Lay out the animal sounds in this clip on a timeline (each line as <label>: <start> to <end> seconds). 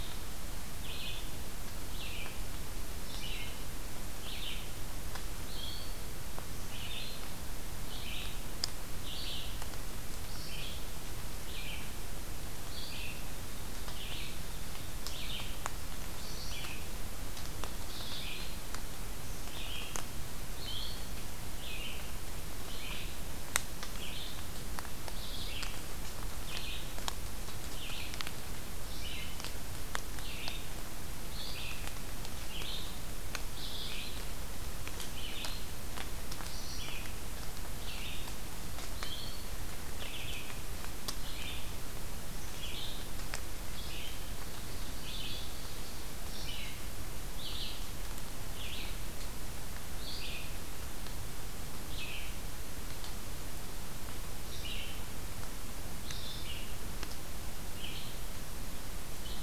Red-eyed Vireo (Vireo olivaceus): 0.0 to 41.7 seconds
Red-eyed Vireo (Vireo olivaceus): 42.5 to 59.4 seconds
Ovenbird (Seiurus aurocapilla): 44.2 to 46.1 seconds